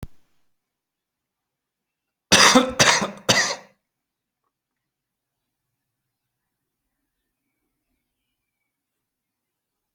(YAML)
expert_labels:
- quality: good
  cough_type: dry
  dyspnea: false
  wheezing: false
  stridor: false
  choking: false
  congestion: false
  nothing: true
  diagnosis: upper respiratory tract infection
  severity: mild
age: 47
gender: male
respiratory_condition: true
fever_muscle_pain: false
status: symptomatic